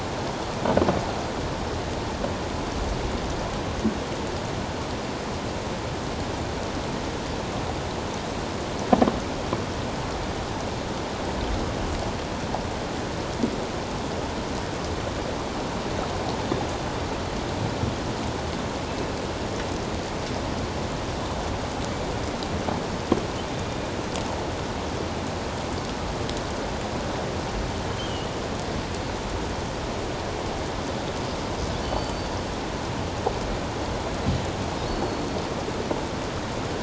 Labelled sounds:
27.9	28.2	killer whale, offshore, 3.0 to 3.2 kHz
31.8	32.4	killer whale, offshore, 3.0 to 4.8 kHz
34.8	35.2	killer whale, offshore, 4.2 to 4.5 kHz

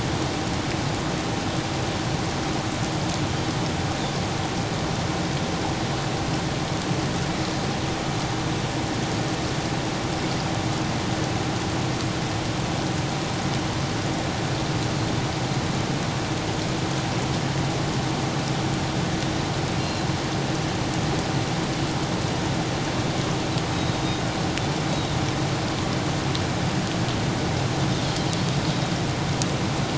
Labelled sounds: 19.8	20.1	Pacific white-sided dolphin, 4.0 to 4.2 kHz
24.9	25.1	Pacific white-sided dolphin, 3.8 to 3.9 kHz

